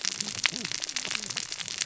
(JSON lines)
{"label": "biophony, cascading saw", "recorder": "SoundTrap 600 or HydroMoth"}